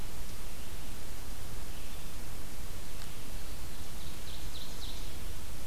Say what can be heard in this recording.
Red-eyed Vireo, Ovenbird